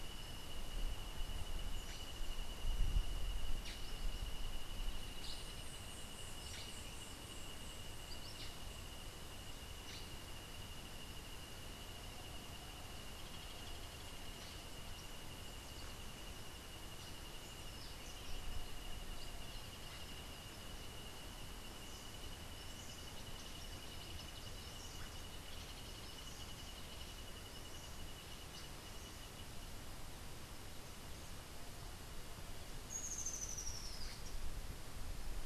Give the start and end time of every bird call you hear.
1.7s-5.5s: Black-headed Saltator (Saltator atriceps)
6.4s-10.3s: Black-headed Saltator (Saltator atriceps)
32.9s-34.3s: Rufous-tailed Hummingbird (Amazilia tzacatl)

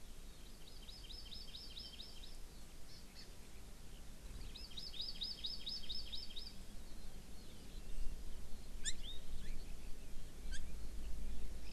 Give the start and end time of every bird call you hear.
0.3s-2.3s: Hawaii Amakihi (Chlorodrepanis virens)
2.8s-3.2s: Hawaii Amakihi (Chlorodrepanis virens)
4.3s-6.5s: Hawaii Amakihi (Chlorodrepanis virens)
6.6s-10.1s: Eurasian Skylark (Alauda arvensis)
8.8s-9.5s: Hawaii Amakihi (Chlorodrepanis virens)
10.5s-10.6s: Hawaii Amakihi (Chlorodrepanis virens)

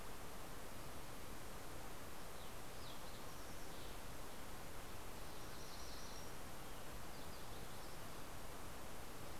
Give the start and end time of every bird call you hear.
1.8s-4.8s: Fox Sparrow (Passerella iliaca)
5.3s-6.5s: MacGillivray's Warbler (Geothlypis tolmiei)
7.0s-8.5s: Yellow-rumped Warbler (Setophaga coronata)

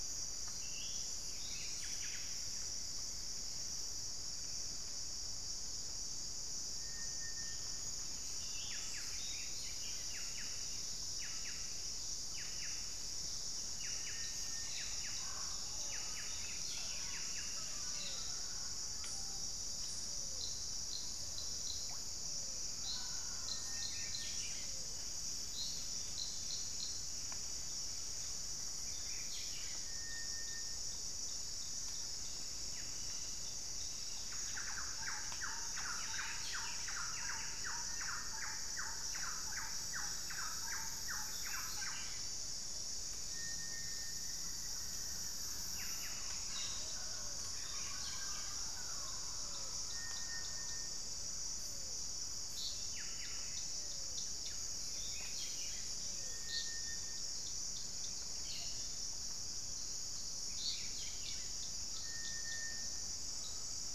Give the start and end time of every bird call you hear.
0.0s-2.3s: Buff-throated Saltator (Saltator maximus)
1.1s-3.0s: Buff-breasted Wren (Cantorchilus leucotis)
7.6s-10.2s: Buff-throated Saltator (Saltator maximus)
8.4s-18.3s: Buff-breasted Wren (Cantorchilus leucotis)
14.6s-23.8s: Mealy Parrot (Amazona farinosa)
15.0s-25.0s: Pale-vented Pigeon (Patagioenas cayennensis)
15.6s-18.4s: Buff-throated Saltator (Saltator maximus)
23.4s-37.8s: Buff-throated Saltator (Saltator maximus)
32.3s-36.6s: Cobalt-winged Parakeet (Brotogeris cyanoptera)
33.7s-43.0s: Thrush-like Wren (Campylorhynchus turdinus)
35.6s-38.0s: Buff-breasted Wren (Cantorchilus leucotis)
44.9s-49.6s: Thrush-like Wren (Campylorhynchus turdinus)
45.0s-61.0s: Pale-vented Pigeon (Patagioenas cayennensis)

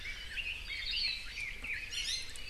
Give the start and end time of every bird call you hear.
0.0s-2.3s: Red-billed Leiothrix (Leiothrix lutea)
0.8s-1.4s: Hawaii Akepa (Loxops coccineus)
1.8s-2.4s: Iiwi (Drepanis coccinea)

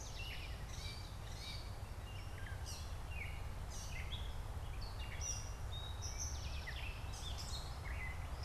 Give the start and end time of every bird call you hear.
0.0s-0.7s: Eastern Towhee (Pipilo erythrophthalmus)
0.0s-8.4s: Gray Catbird (Dumetella carolinensis)
5.5s-7.1s: Eastern Towhee (Pipilo erythrophthalmus)

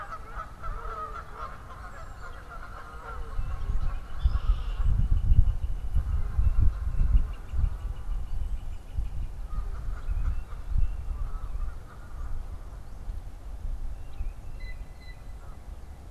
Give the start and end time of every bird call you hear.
0.0s-5.2s: Canada Goose (Branta canadensis)
2.2s-9.6s: Northern Flicker (Colaptes auratus)
3.5s-5.2s: Red-winged Blackbird (Agelaius phoeniceus)
9.4s-16.1s: Canada Goose (Branta canadensis)
9.8s-15.7s: Blue Jay (Cyanocitta cristata)
13.7s-16.1s: unidentified bird

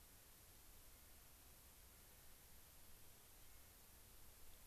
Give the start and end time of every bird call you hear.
0.9s-1.4s: Clark's Nutcracker (Nucifraga columbiana)
1.9s-2.4s: Clark's Nutcracker (Nucifraga columbiana)
3.3s-3.9s: Clark's Nutcracker (Nucifraga columbiana)

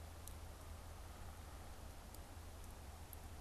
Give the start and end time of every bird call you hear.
0.8s-2.0s: Downy Woodpecker (Dryobates pubescens)

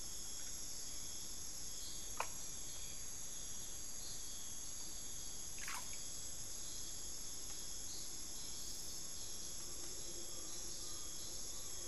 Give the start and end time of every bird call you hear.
9.4s-11.9s: Collared Forest-Falcon (Micrastur semitorquatus)

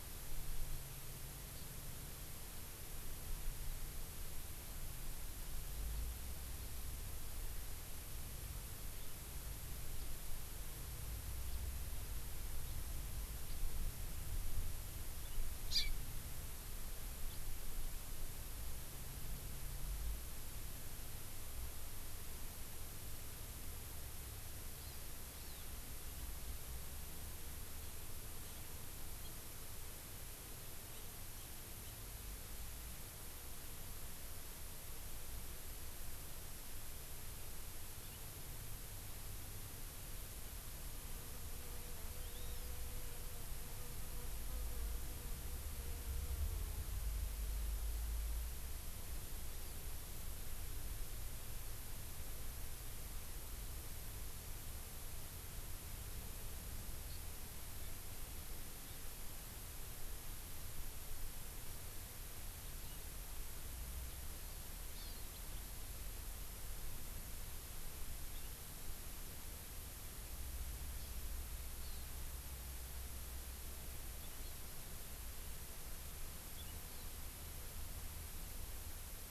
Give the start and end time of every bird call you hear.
15.7s-15.9s: House Finch (Haemorhous mexicanus)
24.8s-25.0s: Hawaii Amakihi (Chlorodrepanis virens)
25.3s-25.6s: Hawaii Amakihi (Chlorodrepanis virens)
42.2s-42.8s: Hawaii Amakihi (Chlorodrepanis virens)
57.1s-57.2s: Hawaii Amakihi (Chlorodrepanis virens)
64.9s-65.2s: Hawaii Amakihi (Chlorodrepanis virens)
71.0s-71.1s: Hawaii Amakihi (Chlorodrepanis virens)
71.8s-72.0s: Hawaii Amakihi (Chlorodrepanis virens)

